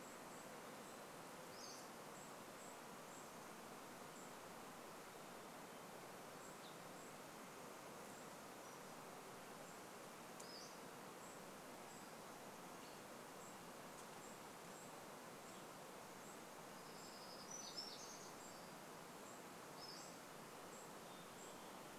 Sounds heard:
Pacific-slope Flycatcher call, Varied Thrush song, warbler song, Golden-crowned Kinglet call, unidentified sound

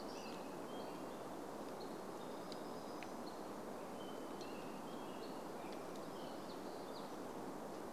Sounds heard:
American Robin song, Hammond's Flycatcher call, warbler song

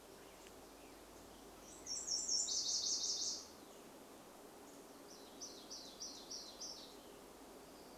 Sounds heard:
Nashville Warbler song, Black-headed Grosbeak song, Chestnut-backed Chickadee call, warbler song

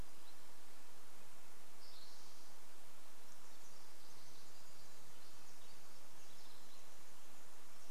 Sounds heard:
Pacific Wren song, Spotted Towhee song

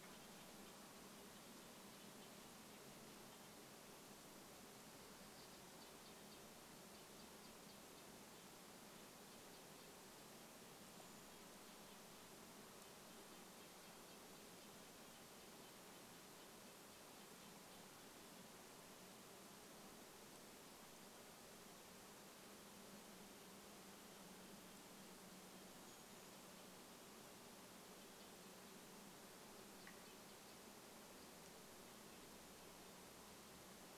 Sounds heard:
Brown Creeper call, Red-breasted Nuthatch song

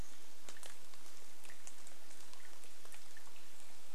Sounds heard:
rain

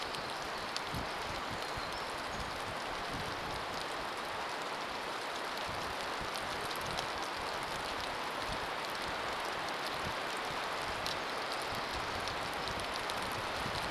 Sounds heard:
unidentified bird chip note, rain, warbler song

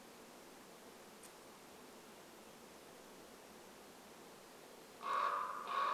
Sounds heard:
Common Raven call

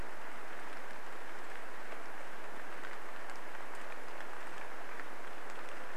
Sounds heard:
rain

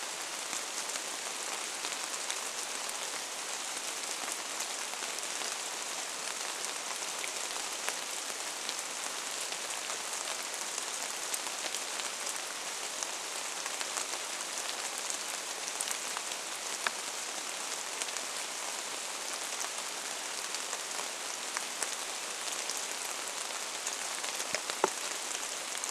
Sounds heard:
rain

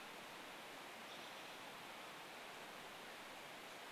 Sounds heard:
American Robin call

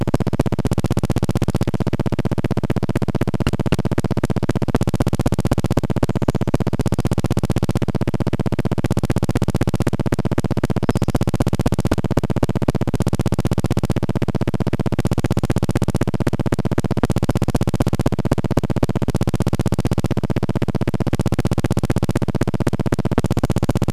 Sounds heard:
Pacific-slope Flycatcher call, recorder noise

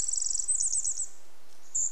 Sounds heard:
Cedar Waxwing call, Pacific Wren song

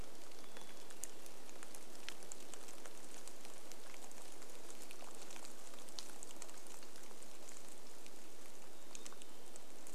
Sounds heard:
Black-capped Chickadee song, rain

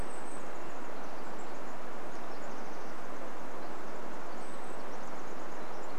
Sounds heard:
Brown Creeper call, Pacific Wren song, Varied Thrush song

